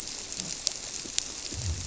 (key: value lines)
label: biophony
recorder: SoundTrap 300